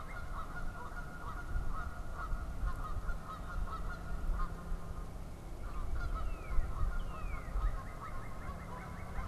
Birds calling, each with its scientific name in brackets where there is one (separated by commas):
Northern Cardinal (Cardinalis cardinalis), Canada Goose (Branta canadensis)